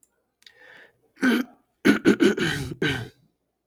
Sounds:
Throat clearing